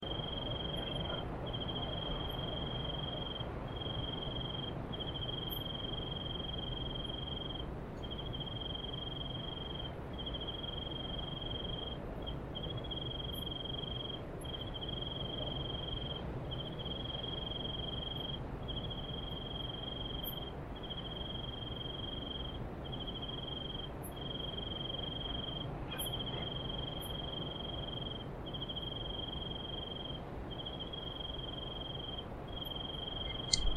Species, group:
Teleogryllus commodus, Orthoptera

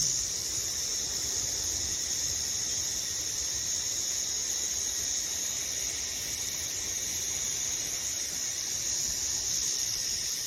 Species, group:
Arunta perulata, Cicadidae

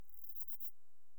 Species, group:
Callicrania ramburii, Orthoptera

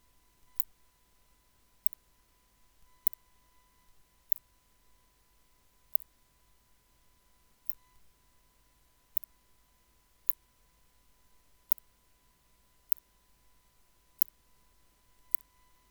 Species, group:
Leptophyes laticauda, Orthoptera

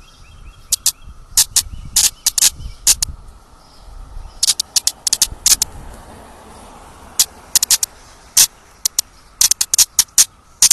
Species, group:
Magicicada cassini, Cicadidae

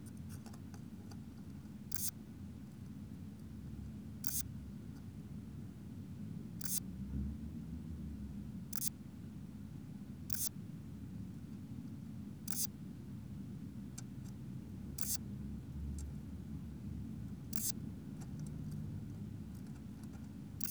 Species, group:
Odontura macphersoni, Orthoptera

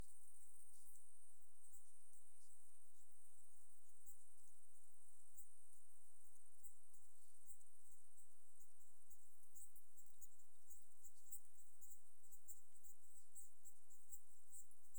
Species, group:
Tettigonia viridissima, Orthoptera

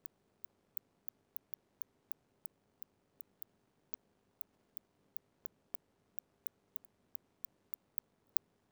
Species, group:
Cyrtaspis scutata, Orthoptera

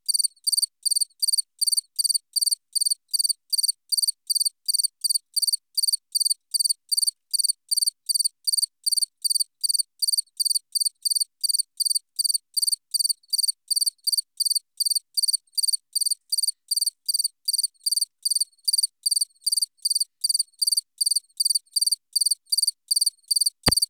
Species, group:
Gryllus bimaculatus, Orthoptera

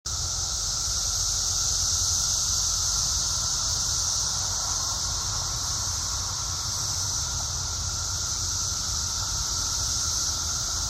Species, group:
Magicicada septendecim, Cicadidae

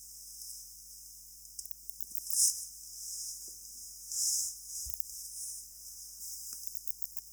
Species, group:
Poecilimon deplanatus, Orthoptera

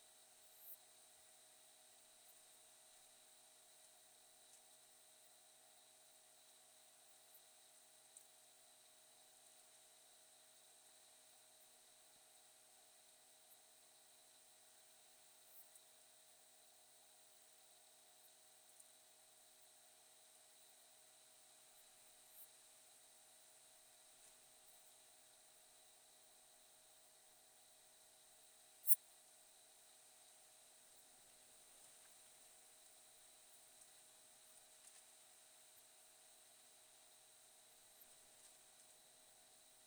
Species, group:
Poecilimon nonveilleri, Orthoptera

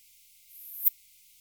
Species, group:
Poecilimon affinis, Orthoptera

